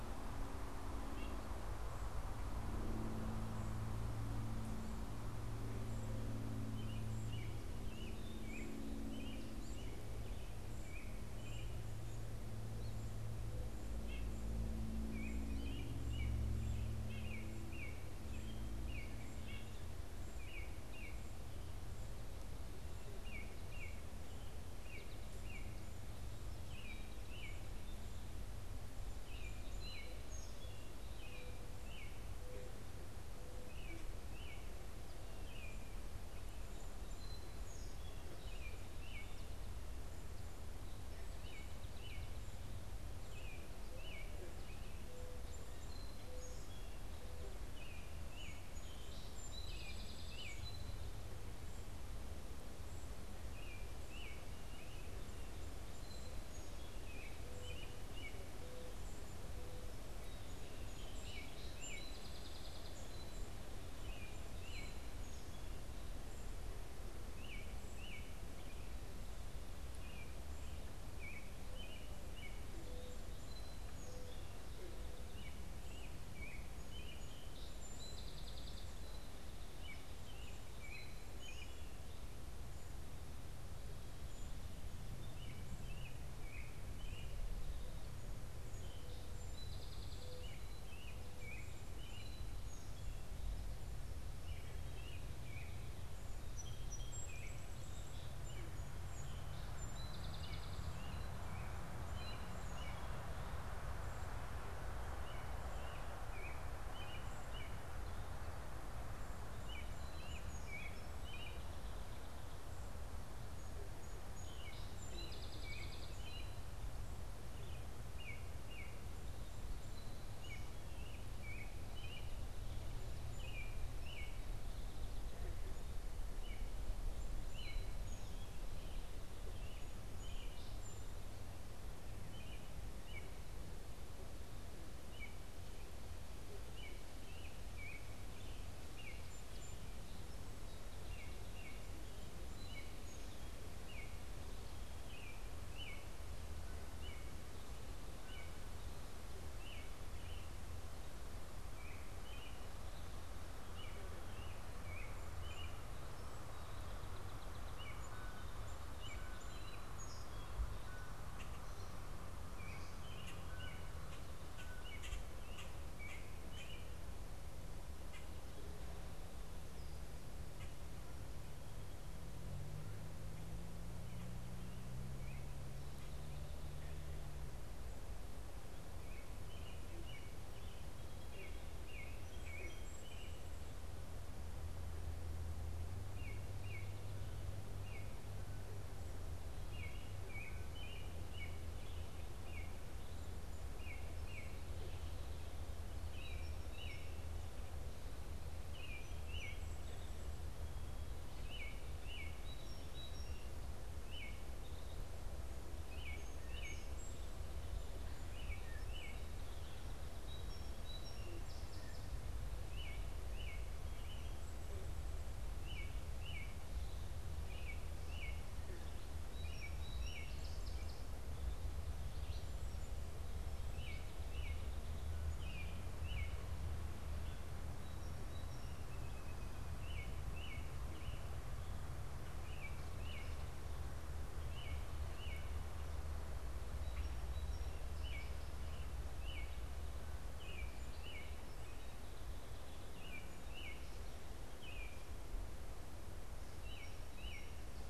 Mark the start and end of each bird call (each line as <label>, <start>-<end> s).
White-breasted Nuthatch (Sitta carolinensis), 1.0-1.5 s
American Robin (Turdus migratorius), 6.6-111.8 s
White-breasted Nuthatch (Sitta carolinensis), 13.8-19.9 s
Song Sparrow (Melospiza melodia), 29.2-31.3 s
Mourning Dove (Zenaida macroura), 31.2-34.3 s
Song Sparrow (Melospiza melodia), 36.4-38.6 s
Mourning Dove (Zenaida macroura), 43.8-47.6 s
Song Sparrow (Melospiza melodia), 44.6-47.7 s
Song Sparrow (Melospiza melodia), 48.0-51.3 s
Song Sparrow (Melospiza melodia), 55.0-56.9 s
Mourning Dove (Zenaida macroura), 56.1-60.1 s
Song Sparrow (Melospiza melodia), 60.1-63.2 s
Song Sparrow (Melospiza melodia), 63.9-66.3 s
Mourning Dove (Zenaida macroura), 71.4-75.3 s
Song Sparrow (Melospiza melodia), 76.7-79.5 s
Mourning Dove (Zenaida macroura), 87.5-90.9 s
Song Sparrow (Melospiza melodia), 88.5-93.4 s
Song Sparrow (Melospiza melodia), 96.4-101.1 s
Song Sparrow (Melospiza melodia), 113.2-116.6 s
American Robin (Turdus migratorius), 114.2-167.0 s
Song Sparrow (Melospiza melodia), 126.7-131.5 s
Song Sparrow (Melospiza melodia), 156.4-160.7 s
unidentified bird, 158.0-165.1 s
Common Grackle (Quiscalus quiscula), 161.1-168.3 s
Common Grackle (Quiscalus quiscula), 170.5-170.8 s
American Robin (Turdus migratorius), 175.1-226.5 s
Song Sparrow (Melospiza melodia), 180.9-183.6 s
Song Sparrow (Melospiza melodia), 198.9-207.5 s
Song Sparrow (Melospiza melodia), 219.1-223.1 s
Song Sparrow (Melospiza melodia), 227.1-230.0 s
American Robin (Turdus migratorius), 229.7-247.9 s
Song Sparrow (Melospiza melodia), 236.5-239.1 s
Song Sparrow (Melospiza melodia), 240.3-243.1 s
Song Sparrow (Melospiza melodia), 246.5-247.9 s